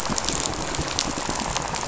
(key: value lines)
label: biophony, rattle
recorder: SoundTrap 500